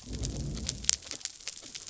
{"label": "biophony", "recorder": "SoundTrap 300"}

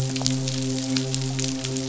{"label": "biophony, midshipman", "recorder": "SoundTrap 500"}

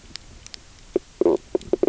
{"label": "biophony, knock croak", "recorder": "SoundTrap 300"}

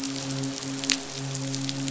{"label": "biophony, midshipman", "recorder": "SoundTrap 500"}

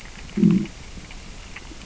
{"label": "biophony, growl", "recorder": "SoundTrap 600 or HydroMoth"}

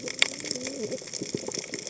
{"label": "biophony, cascading saw", "recorder": "HydroMoth"}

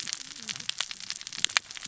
{"label": "biophony, cascading saw", "recorder": "SoundTrap 600 or HydroMoth"}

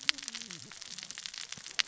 {"label": "biophony, cascading saw", "recorder": "SoundTrap 600 or HydroMoth"}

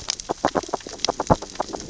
{"label": "biophony, grazing", "recorder": "SoundTrap 600 or HydroMoth"}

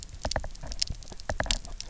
{"label": "biophony, knock", "recorder": "SoundTrap 300"}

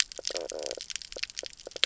{"label": "biophony, knock croak", "recorder": "SoundTrap 300"}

